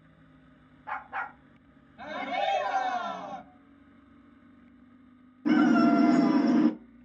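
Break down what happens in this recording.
- 0.8 s: a dog barks
- 2.0 s: cheering can be heard
- 5.5 s: an insect is audible
- a faint continuous noise runs in the background

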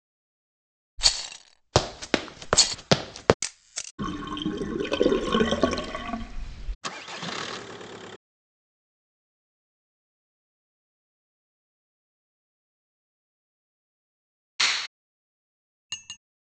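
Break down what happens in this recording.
- 1.0 s: rattling is heard
- 1.7 s: there is running
- 3.4 s: the sound of a camera can be heard
- 4.0 s: the sound of a sink is audible
- 6.8 s: an engine starts
- 14.6 s: fingers snap
- 15.9 s: the quiet sound of dishes can be heard

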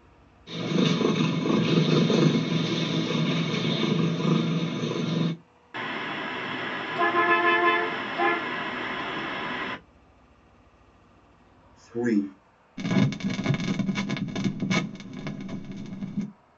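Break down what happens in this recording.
- 0.5 s: a cat purrs
- 5.7 s: the sound of a bus
- 11.9 s: someone says "three"
- 12.8 s: crackling can be heard
- a faint continuous noise persists

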